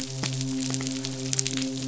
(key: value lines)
label: biophony, midshipman
recorder: SoundTrap 500